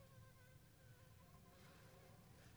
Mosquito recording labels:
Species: Anopheles funestus s.s.; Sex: female; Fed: unfed; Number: one; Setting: cup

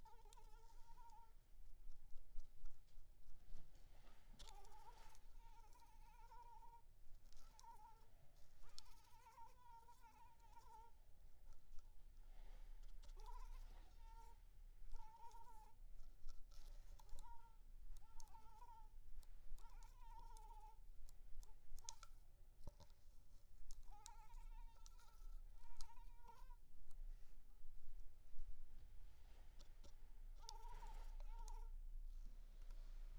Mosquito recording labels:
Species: Anopheles arabiensis; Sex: female; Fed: unfed; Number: one; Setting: cup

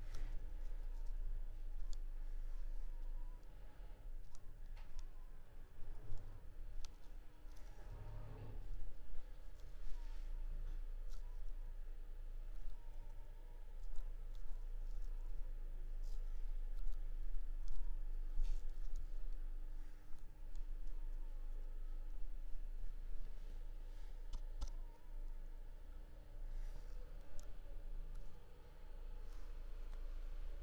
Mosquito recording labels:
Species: Anopheles squamosus; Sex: female; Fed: unfed; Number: one; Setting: cup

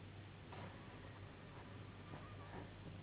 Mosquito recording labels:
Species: Anopheles gambiae s.s.; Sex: female; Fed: unfed; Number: one; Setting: insect culture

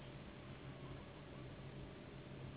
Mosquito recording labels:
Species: Anopheles gambiae s.s.; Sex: female; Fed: unfed; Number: one; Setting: insect culture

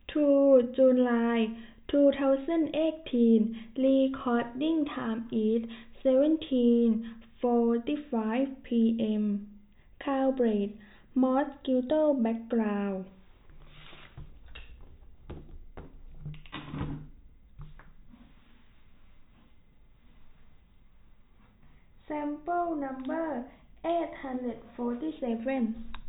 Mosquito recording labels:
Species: no mosquito; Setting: cup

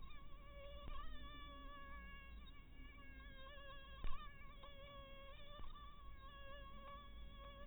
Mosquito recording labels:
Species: mosquito; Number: one; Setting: cup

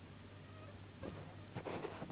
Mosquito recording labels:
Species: Anopheles gambiae s.s.; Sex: female; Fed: unfed; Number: one; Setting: insect culture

